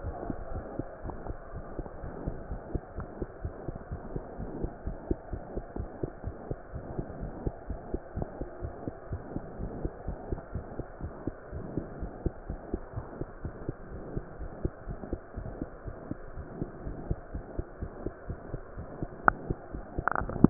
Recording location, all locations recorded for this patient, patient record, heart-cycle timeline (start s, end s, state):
mitral valve (MV)
aortic valve (AV)+pulmonary valve (PV)+tricuspid valve (TV)+mitral valve (MV)
#Age: Child
#Sex: Female
#Height: 88.0 cm
#Weight: 12.5 kg
#Pregnancy status: False
#Murmur: Present
#Murmur locations: aortic valve (AV)+mitral valve (MV)+pulmonary valve (PV)+tricuspid valve (TV)
#Most audible location: tricuspid valve (TV)
#Systolic murmur timing: Holosystolic
#Systolic murmur shape: Plateau
#Systolic murmur grading: II/VI
#Systolic murmur pitch: Low
#Systolic murmur quality: Blowing
#Diastolic murmur timing: nan
#Diastolic murmur shape: nan
#Diastolic murmur grading: nan
#Diastolic murmur pitch: nan
#Diastolic murmur quality: nan
#Outcome: Abnormal
#Campaign: 2015 screening campaign
0.00	0.34	unannotated
0.34	0.52	diastole
0.52	0.64	S1
0.64	0.78	systole
0.78	0.86	S2
0.86	1.04	diastole
1.04	1.16	S1
1.16	1.28	systole
1.28	1.38	S2
1.38	1.54	diastole
1.54	1.62	S1
1.62	1.78	systole
1.78	1.86	S2
1.86	2.04	diastole
2.04	2.14	S1
2.14	2.26	systole
2.26	2.36	S2
2.36	2.49	diastole
2.49	2.59	S1
2.59	2.70	systole
2.70	2.80	S2
2.80	2.96	diastole
2.96	3.08	S1
3.08	3.20	systole
3.20	3.28	S2
3.28	3.44	diastole
3.44	3.54	S1
3.54	3.68	systole
3.68	3.76	S2
3.76	3.90	diastole
3.90	4.02	S1
4.02	4.14	systole
4.14	4.22	S2
4.22	4.38	diastole
4.38	4.50	S1
4.50	4.62	systole
4.62	4.72	S2
4.72	4.86	diastole
4.86	4.95	S1
4.95	5.06	systole
5.06	5.18	S2
5.18	5.32	diastole
5.32	5.42	S1
5.42	5.56	systole
5.56	5.64	S2
5.64	5.77	diastole
5.77	5.87	S1
5.87	5.98	systole
5.98	6.10	S2
6.10	6.26	diastole
6.26	6.36	S1
6.36	6.50	systole
6.50	6.58	S2
6.58	6.74	diastole
6.74	6.86	S1
6.86	6.96	systole
6.96	7.06	S2
7.06	7.20	diastole
7.20	7.32	S1
7.32	7.46	systole
7.46	7.54	S2
7.54	7.68	diastole
7.68	7.80	S1
7.80	7.92	systole
7.92	8.02	S2
8.02	8.16	diastole
8.16	8.26	S1
8.26	8.38	systole
8.38	8.48	S2
8.48	8.62	diastole
8.62	8.72	S1
8.72	8.84	systole
8.84	8.94	S2
8.94	9.10	diastole
9.10	9.22	S1
9.22	9.34	systole
9.34	9.44	S2
9.44	9.60	diastole
9.60	9.72	S1
9.72	9.82	systole
9.82	9.92	S2
9.92	10.06	diastole
10.06	10.18	S1
10.18	10.30	systole
10.30	10.40	S2
10.40	10.54	diastole
10.54	10.66	S1
10.66	10.76	systole
10.76	10.86	S2
10.86	11.02	diastole
11.02	11.14	S1
11.14	11.26	systole
11.26	11.34	S2
11.34	11.54	diastole
11.54	11.66	S1
11.66	11.75	systole
11.75	11.86	S2
11.86	12.00	diastole
12.00	12.12	S1
12.12	12.24	systole
12.24	12.34	S2
12.34	12.50	diastole
12.50	12.60	S1
12.60	12.71	systole
12.71	12.82	S2
12.82	12.95	diastole
12.95	13.04	S1
13.04	13.18	systole
13.18	13.28	S2
13.28	13.44	diastole
13.44	13.54	S1
13.54	13.66	systole
13.66	13.76	S2
13.76	13.94	diastole
13.94	20.50	unannotated